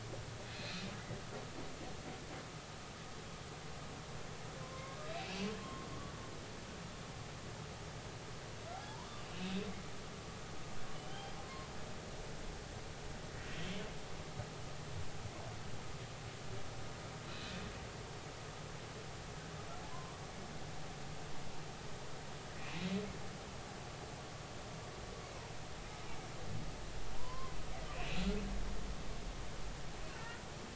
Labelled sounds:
0.5	0.8	humpback whale, 2.4 to 4.3 kHz
4.6	5.9	humpback whale, 0.99 to 2.9 kHz
8.7	9.6	humpback whale, 0.80 to 3.8 kHz
10.9	11.7	humpback whale, 0.99 to 3.2 kHz
13.5	13.8	humpback whale, 3.0 to 3.4 kHz
17.3	17.5	humpback whale, 2.4 to 4.2 kHz
19.9	20.2	humpback whale, 0.93 to 1.1 kHz
27.2	28.2	humpback whale, 0.93 to 2.8 kHz

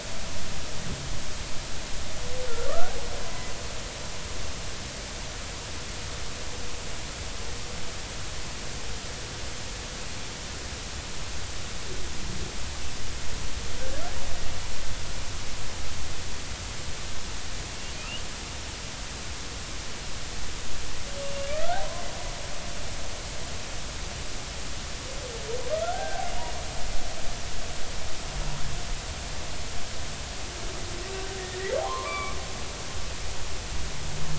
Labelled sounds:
2.7	3.0	humpback whale, 1.1 to 1.7 kHz
3.3	3.5	humpback whale, 1.98 to 2.05 kHz
17.9	18.2	humpback whale, 2.4 to 3.1 kHz
21.2	21.5	humpback whale, 2.7 to 2.8 kHz
25.7	26.6	humpback whale, 1.2 to 2.9 kHz
31.4	32.4	humpback whale, 0.80 to 2.5 kHz

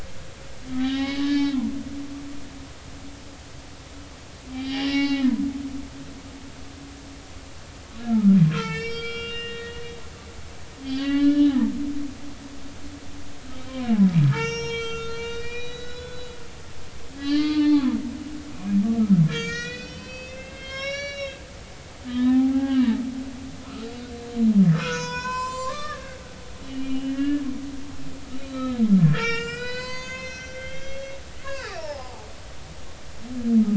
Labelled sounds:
0.7	1.6	humpback whale, 0.80 to 5.3 kHz
4.5	5.3	humpback whale, 0.80 to 5.7 kHz
8.0	9.8	humpback whale, 1.2 to 6.4 kHz
10.5	11.6	humpback whale, 1.1 to 4.7 kHz
13.7	13.9	humpback whale, 2.1 to 2.4 kHz
14.3	16.3	humpback whale, 0.86 to 6.6 kHz
17.1	18.0	humpback whale, 0.93 to 4.7 kHz
18.5	18.8	humpback whale, 2.4 to 2.6 kHz
19.3	21.4	humpback whale, 1.0 to 6.9 kHz
22.1	23.0	humpback whale, 0.80 to 3.0 kHz
23.7	23.9	humpback whale, 1.2 to 1.5 kHz
24.6	26.2	humpback whale, 0.93 to 7.8 kHz
26.6	27.4	humpback whale, 1.6 to 3.0 kHz
28.4	32.3	humpback whale, 0.80 to 7.7 kHz

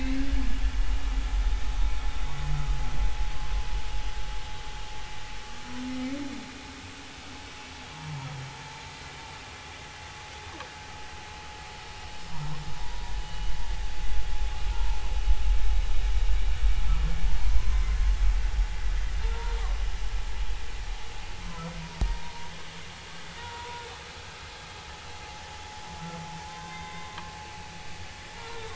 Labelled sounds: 6.0	6.3	humpback whale, 2.0 to 2.3 kHz
8.5	8.8	humpback whale, 0.86 to 0.93 kHz
12.7	13.5	humpback whale, 0.93 to 3.0 kHz
14.7	15.0	humpback whale, 0.86 to 1.1 kHz
17.6	17.9	humpback whale, 0.96 to 1.1 kHz
19.2	19.6	humpback whale, 0.86 to 1.0 kHz
22.0	22.5	humpback whale, 0.90 to 0.99 kHz
23.4	23.8	humpback whale, 0.90 to 1.5 kHz
26.5	27.1	humpback whale, 0.99 to 3.7 kHz
28.3	28.7	humpback whale, 0.86 to 1.4 kHz

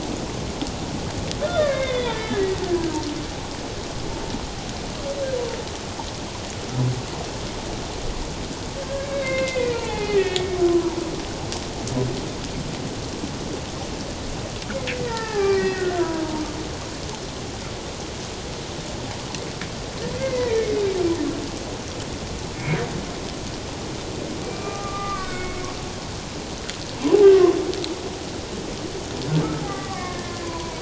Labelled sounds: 1.4	2.5	humpback whale, 1.5 to 3.8 kHz
8.8	11.0	humpback whale, 0.78 to 2.9 kHz
14.9	16.4	humpback whale, 0.78 to 2.4 kHz
20.2	20.8	humpback whale, 1.8 to 2.5 kHz
22.5	22.8	humpback whale, 2.1 to 2.5 kHz
24.4	25.6	humpback whale, 1.1 to 2.5 kHz
29.6	30.7	humpback whale, 0.94 to 2.2 kHz

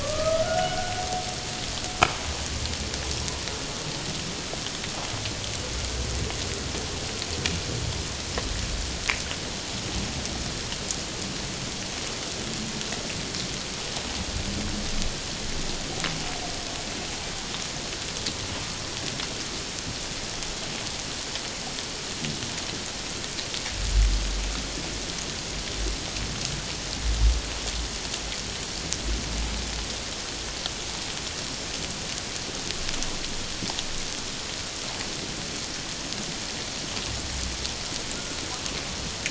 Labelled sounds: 0.0	0.9	humpback whale, 1.1 to 1.5 kHz

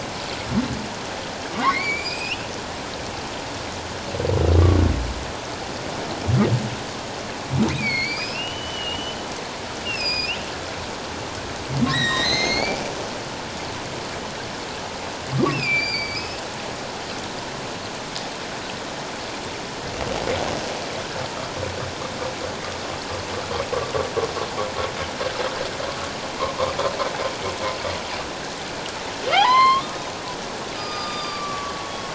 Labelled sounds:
1.5	2.5	humpback whale, 0.91 to 5.5 kHz
7.7	9.2	humpback whale, 2.0 to 5.4 kHz
9.8	10.4	humpback whale, 2.4 to 5.5 kHz
11.9	12.8	humpback whale, 1.6 to 7.8 kHz
15.5	16.4	humpback whale, 2.2 to 5.4 kHz
29.3	32.1	humpback whale, 0.78 to 5.3 kHz

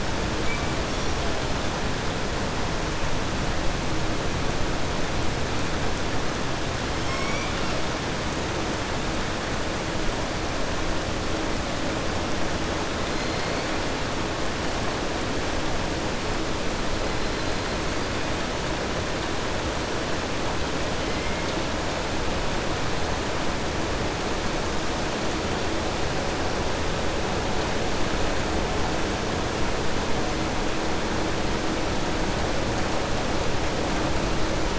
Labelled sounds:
7.0	7.8	killer whale, southern resident, 1.4 to 5.5 kHz

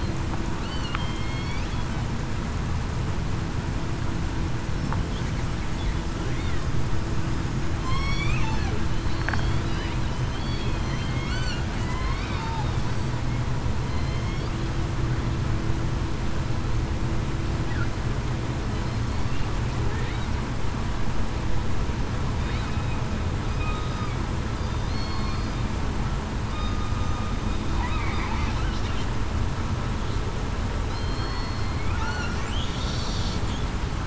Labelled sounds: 1.0	1.6	killer whale, southern resident, 3.1 to 4.5 kHz
7.8	8.3	killer whale, southern resident, 1.0 to 5.8 kHz
9.1	9.5	killer whale, southern resident, 4.3 to 4.5 kHz
10.3	11.1	killer whale, southern resident, 3.1 to 3.4 kHz
11.8	12.4	killer whale, southern resident, 1.9 to 2.3 kHz
13.9	14.2	killer whale, southern resident, 4.1 to 4.2 kHz
24.5	24.9	killer whale, southern resident, 4.7 to 4.9 kHz
26.5	26.9	killer whale, southern resident, 1.20 to 1.24 kHz
30.9	32.4	killer whale, southern resident, 1.2 to 4.4 kHz

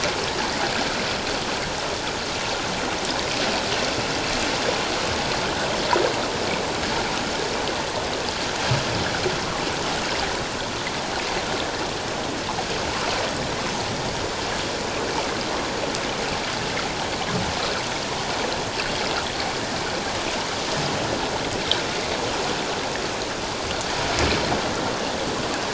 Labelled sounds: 12.9	13.2	water noise, 0.91 to 1.4 kHz

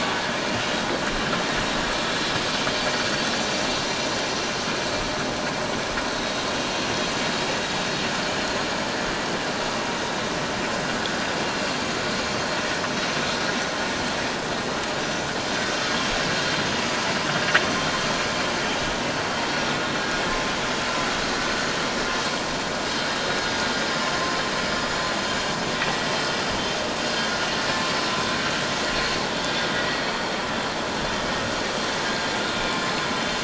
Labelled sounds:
2.4	2.7	vessel noise, 6.3 to 6.5 kHz
15.0	15.2	vessel noise, 5.8 to 6.0 kHz
28.2	28.5	vessel noise, 1.5 to 1.6 kHz
32.6	32.8	vessel noise, 2.3 to 2.5 kHz

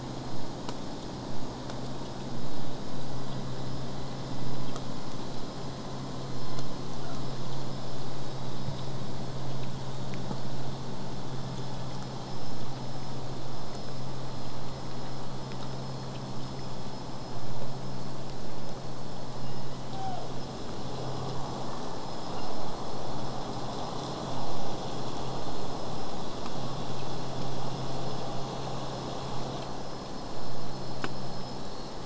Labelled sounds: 7.0	7.2	killer whale, southern resident, J pod, 0.52 to 1.7 kHz

